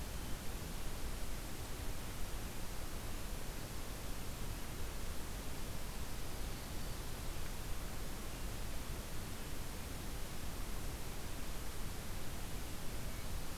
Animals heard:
forest ambience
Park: Hubbard Brook Experimental Forest